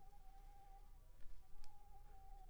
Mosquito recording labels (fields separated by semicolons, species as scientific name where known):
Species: Anopheles squamosus; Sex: female; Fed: unfed; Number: one; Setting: cup